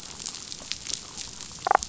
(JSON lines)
{"label": "biophony, damselfish", "recorder": "SoundTrap 500"}